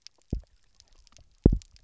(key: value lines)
label: biophony, double pulse
recorder: SoundTrap 300